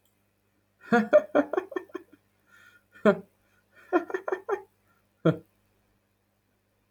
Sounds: Laughter